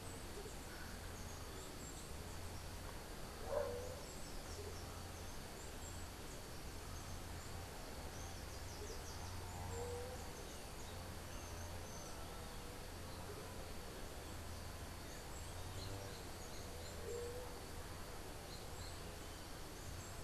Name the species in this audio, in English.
Andean Motmot